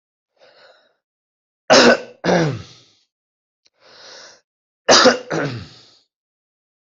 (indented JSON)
{
  "expert_labels": [
    {
      "quality": "good",
      "cough_type": "dry",
      "dyspnea": false,
      "wheezing": false,
      "stridor": false,
      "choking": false,
      "congestion": false,
      "nothing": true,
      "diagnosis": "upper respiratory tract infection",
      "severity": "mild"
    }
  ],
  "age": 31,
  "gender": "male",
  "respiratory_condition": false,
  "fever_muscle_pain": true,
  "status": "symptomatic"
}